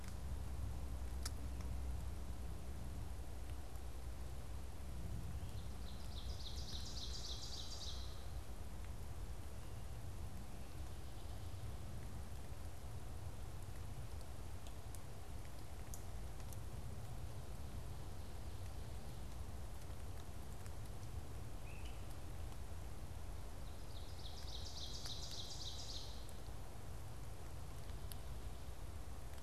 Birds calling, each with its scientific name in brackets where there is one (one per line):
unidentified bird
Ovenbird (Seiurus aurocapilla)